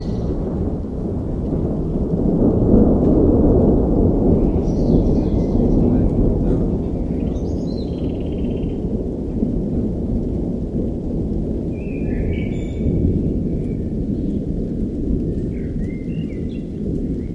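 Wind blowing outdoors. 0:00.0 - 0:17.3
A bird chirps from afar with an echo. 0:04.2 - 0:09.3
A bird chirps from afar with an echo. 0:11.6 - 0:17.3

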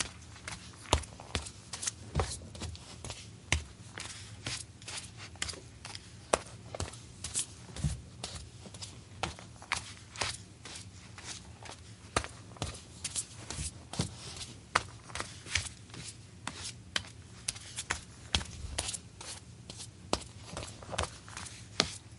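Footsteps repeating. 0:00.0 - 0:22.2

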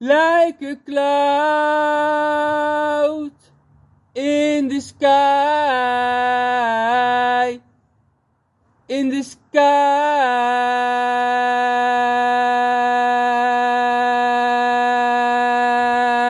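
A man is singing very loudly. 0:00.0 - 0:03.3
A man is singing very loudly. 0:04.2 - 0:07.6
A man is singing very loudly. 0:08.9 - 0:16.3

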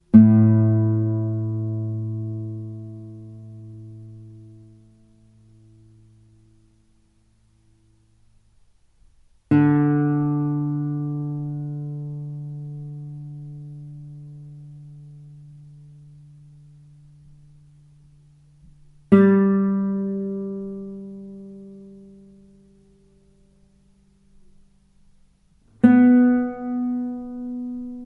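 A guitar string is being plucked. 0:00.0 - 0:04.0
A guitar is playing. 0:09.3 - 0:13.5
A guitar is playing. 0:18.9 - 0:21.1
A guitar string is played. 0:25.7 - 0:28.0

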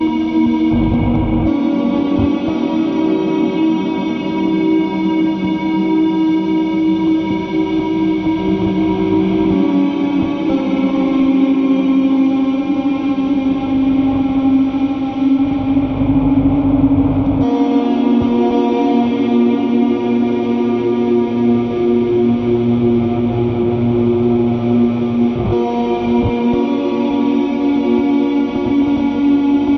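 An electronic guitar solo with intense, sustained reverb. 0:00.0 - 0:29.8

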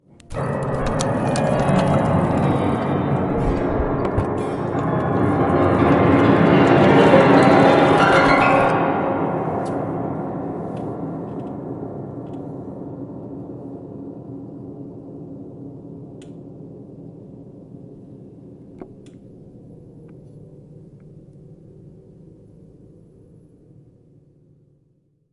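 A piano being played loudly indoors. 0:00.2 - 0:09.5
Deep, resonant vibrations of a piano being played. 0:00.3 - 0:09.5
A deep piano hum steadily quietens. 0:09.4 - 0:25.3
A sharp, loud squelching sound. 0:09.5 - 0:09.7
Soft, quiet wooden creaking. 0:10.7 - 0:12.5
A soft, quiet click. 0:16.2 - 0:16.4
A soft wooden thump. 0:18.8 - 0:18.9
A soft, quiet click. 0:19.0 - 0:19.2
A soft, quiet squelching sound. 0:20.0 - 0:20.2

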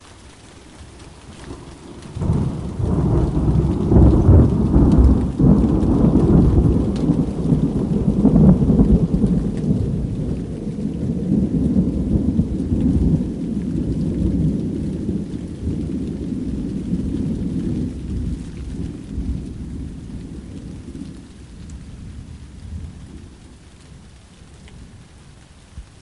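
Rain tapping. 0:00.0 - 0:26.0
Thunder rumbling. 0:02.1 - 0:20.2

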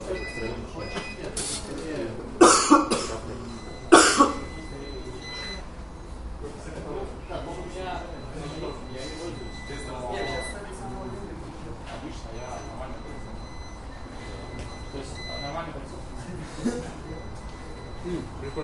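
A soft ringing sound. 0:00.0 - 0:01.3
A man coughs. 0:02.3 - 0:04.4
Multiple people are talking in the distance. 0:04.5 - 0:18.6
A soft beeping noise in the distance. 0:04.6 - 0:18.5

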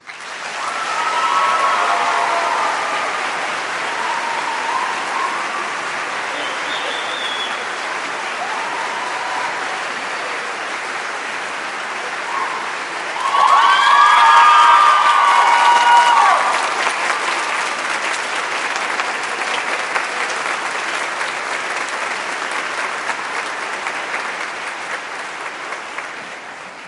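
People clapping. 0:00.0 - 0:13.1
People screaming then gradually calming down. 0:00.6 - 0:11.2
Someone whistles loudly. 0:06.2 - 0:08.3
People scream very loudly and then stop abruptly. 0:13.1 - 0:16.8
Loud hand clapping gradually fades. 0:13.1 - 0:26.9

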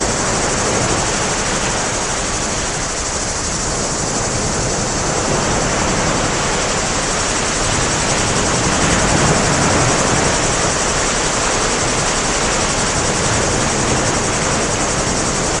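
Crickets chirping loudly. 0:00.0 - 0:15.6
Ocean waves crashing loudly. 0:00.0 - 0:15.6

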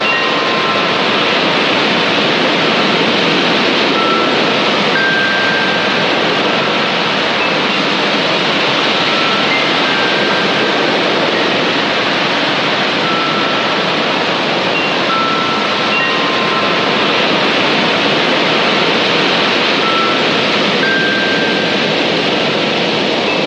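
Wind-like turbulent scratchy noise. 0:00.0 - 0:23.5
Very subtle continuous music box noise in the background. 0:00.0 - 0:23.5

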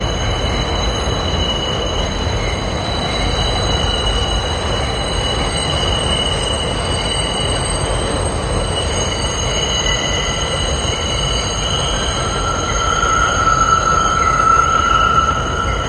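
Train wheels squeal continuously, echoing in a tunnel. 0:00.0 - 0:15.9
Wheels scratch the surface loudly with continuous echoing. 0:12.5 - 0:15.9

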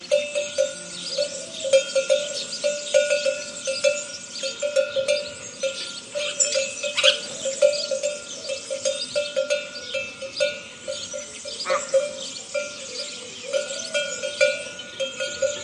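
Continuous cowbell sounds with birds calling in the background. 0:00.0 - 0:15.6

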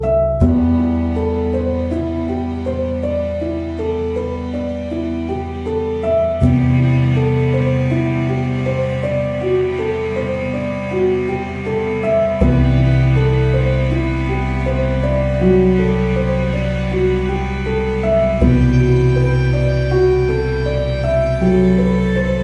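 Slow, melancholic piano melody accompanied by string instruments. 0:00.0 - 0:22.4

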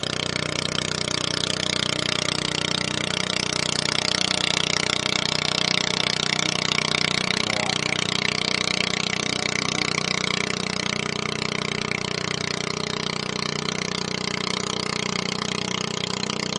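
The engine of a small motorboat is humming steadily. 0:00.0 - 0:16.6

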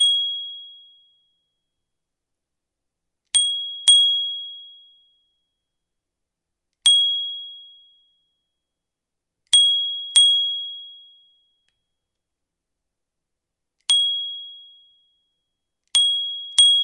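A bike bell rings. 0:00.0 - 0:00.7
A bike bell rings twice. 0:03.3 - 0:04.8
A bike bell rings. 0:06.8 - 0:07.7
A bike bell rings twice. 0:09.5 - 0:11.0
A bike bell rings. 0:13.9 - 0:14.6
A bike bell rings twice. 0:15.9 - 0:16.8

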